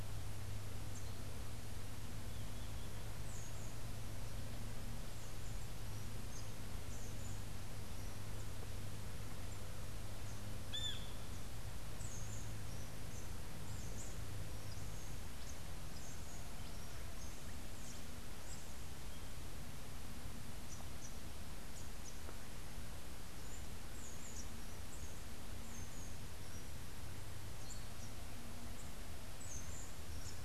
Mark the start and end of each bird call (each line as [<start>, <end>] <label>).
[10.57, 11.17] Brown Jay (Psilorhinus morio)